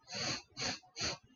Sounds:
Sniff